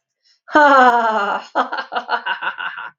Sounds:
Laughter